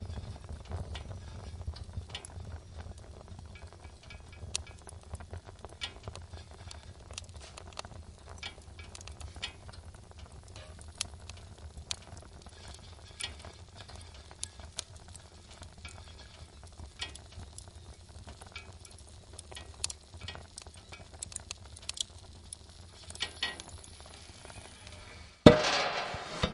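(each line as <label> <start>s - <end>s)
A metallic rattling sound. 0.0s - 25.3s
Wood crackling as it burns. 0.0s - 25.4s
A metal door clanks shut loudly. 25.4s - 26.5s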